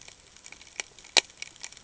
{"label": "ambient", "recorder": "HydroMoth"}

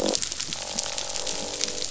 {"label": "biophony, croak", "recorder": "SoundTrap 500"}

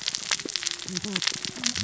{"label": "biophony, cascading saw", "recorder": "SoundTrap 600 or HydroMoth"}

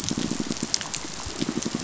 {"label": "biophony, pulse", "recorder": "SoundTrap 500"}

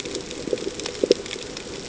{"label": "ambient", "recorder": "HydroMoth"}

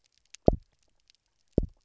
{"label": "biophony, double pulse", "recorder": "SoundTrap 300"}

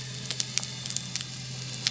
{"label": "anthrophony, boat engine", "recorder": "SoundTrap 300"}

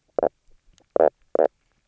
{"label": "biophony, knock croak", "recorder": "SoundTrap 300"}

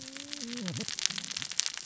{"label": "biophony, cascading saw", "recorder": "SoundTrap 600 or HydroMoth"}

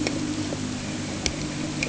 {"label": "anthrophony, boat engine", "recorder": "HydroMoth"}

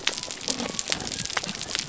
{"label": "biophony", "recorder": "SoundTrap 300"}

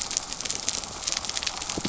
{"label": "biophony", "recorder": "SoundTrap 300"}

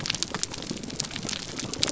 {"label": "biophony", "recorder": "SoundTrap 300"}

